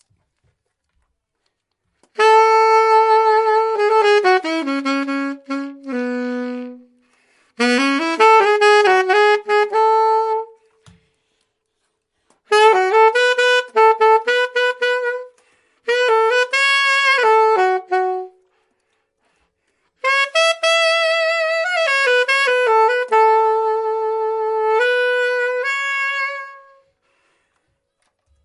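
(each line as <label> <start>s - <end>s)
A saxophone plays with complex jazz-like drawls. 2.1s - 10.8s
A saxophone plays with complex jazz-like drawls. 12.4s - 18.4s
A saxophone plays with complex jazz-like drawls. 19.9s - 26.9s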